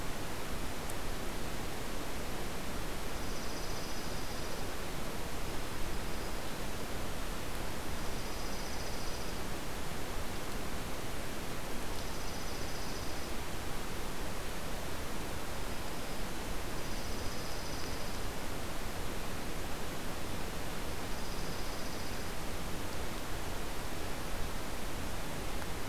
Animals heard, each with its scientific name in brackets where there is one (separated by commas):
Dark-eyed Junco (Junco hyemalis), Black-throated Green Warbler (Setophaga virens)